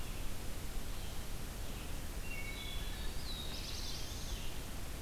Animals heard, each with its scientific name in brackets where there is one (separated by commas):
Red-eyed Vireo (Vireo olivaceus), Wood Thrush (Hylocichla mustelina), Veery (Catharus fuscescens), Black-throated Blue Warbler (Setophaga caerulescens)